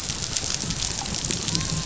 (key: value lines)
label: biophony, dolphin
recorder: SoundTrap 500